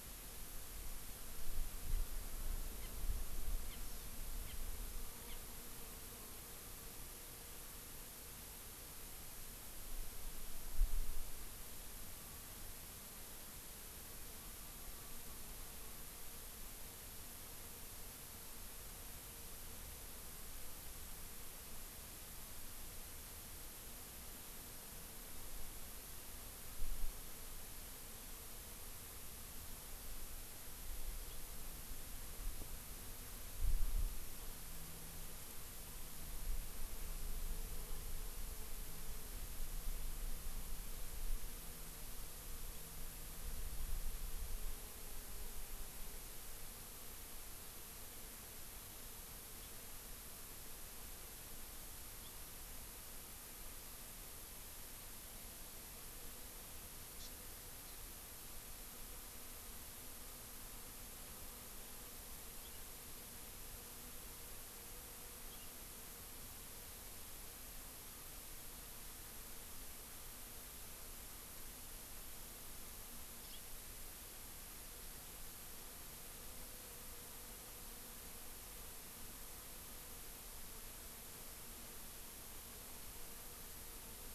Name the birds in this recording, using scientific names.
Haemorhous mexicanus, Chlorodrepanis virens